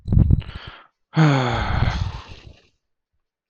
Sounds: Sigh